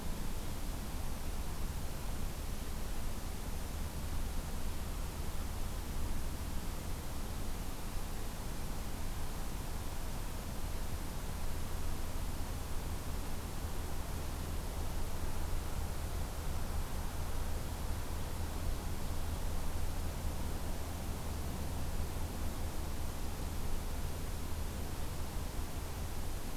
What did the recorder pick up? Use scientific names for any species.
forest ambience